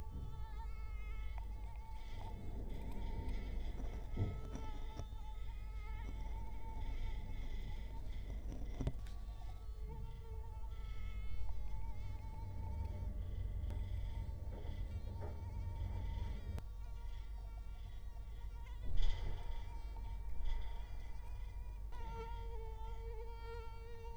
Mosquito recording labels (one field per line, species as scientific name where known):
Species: Culex quinquefasciatus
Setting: cup